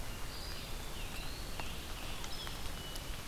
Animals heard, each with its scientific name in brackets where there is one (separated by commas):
Scarlet Tanager (Piranga olivacea), Hermit Thrush (Catharus guttatus), Eastern Wood-Pewee (Contopus virens)